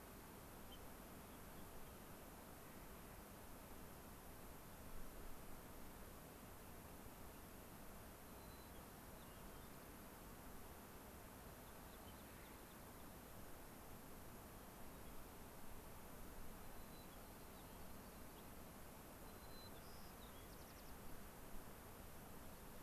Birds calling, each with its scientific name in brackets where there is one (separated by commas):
unidentified bird, Gray-crowned Rosy-Finch (Leucosticte tephrocotis), Hermit Thrush (Catharus guttatus), Rock Wren (Salpinctes obsoletus), White-crowned Sparrow (Zonotrichia leucophrys), American Pipit (Anthus rubescens), Clark's Nutcracker (Nucifraga columbiana)